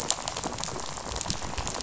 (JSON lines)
{"label": "biophony, rattle", "recorder": "SoundTrap 500"}